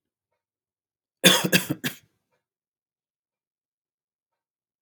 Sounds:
Cough